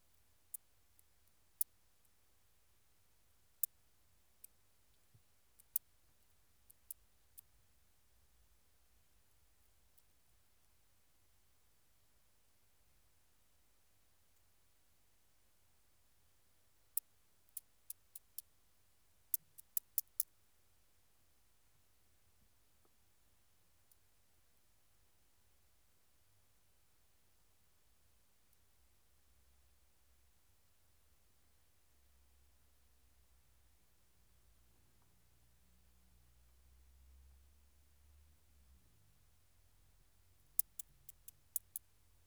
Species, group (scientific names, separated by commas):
Omocestus viridulus, Orthoptera